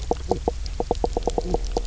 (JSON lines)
{"label": "biophony, knock croak", "recorder": "SoundTrap 300"}